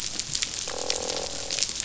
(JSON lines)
{"label": "biophony, croak", "recorder": "SoundTrap 500"}